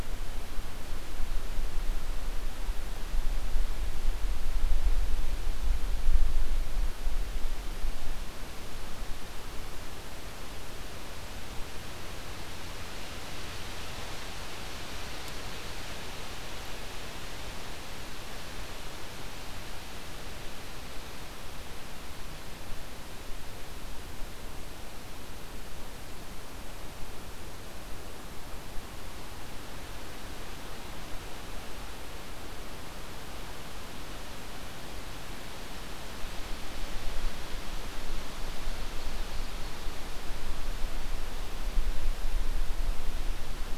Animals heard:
forest ambience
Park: Acadia National Park